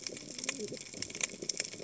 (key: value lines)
label: biophony, cascading saw
recorder: HydroMoth